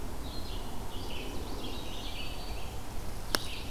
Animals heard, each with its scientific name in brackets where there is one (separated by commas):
Broad-winged Hawk (Buteo platypterus), Magnolia Warbler (Setophaga magnolia), Red-eyed Vireo (Vireo olivaceus)